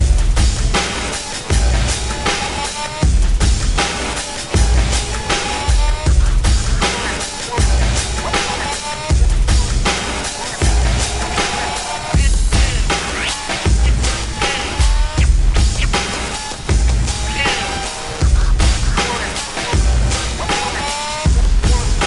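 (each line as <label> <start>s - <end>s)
A drum is banging. 0.0s - 2.2s
Music playing. 0.0s - 22.1s
Repeated drum bangs. 3.0s - 3.8s
A drum is banging. 4.5s - 6.9s
A drum is banging. 7.5s - 8.0s
Repeated drum bangs. 9.0s - 9.9s
A drum is banging. 10.5s - 11.0s
Repeated drum bangs. 12.1s - 13.0s
A drum is banging. 13.6s - 15.9s
A drum is banging. 16.6s - 17.4s
Repeated drum bangs. 18.2s - 19.0s
A drum is banging. 19.7s - 20.6s
Repeated drum bangs. 21.2s - 22.1s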